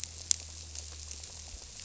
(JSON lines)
{"label": "biophony", "recorder": "SoundTrap 300"}